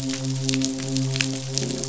{"label": "biophony, midshipman", "recorder": "SoundTrap 500"}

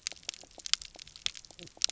{"label": "biophony, knock croak", "recorder": "SoundTrap 300"}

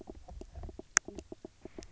{"label": "biophony, knock croak", "recorder": "SoundTrap 300"}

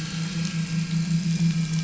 {"label": "anthrophony, boat engine", "recorder": "SoundTrap 500"}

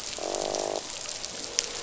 {"label": "biophony, croak", "recorder": "SoundTrap 500"}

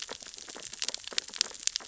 {"label": "biophony, sea urchins (Echinidae)", "recorder": "SoundTrap 600 or HydroMoth"}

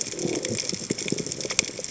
{"label": "biophony", "recorder": "HydroMoth"}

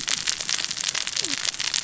{"label": "biophony, cascading saw", "recorder": "SoundTrap 600 or HydroMoth"}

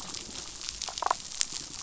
{"label": "biophony, damselfish", "recorder": "SoundTrap 500"}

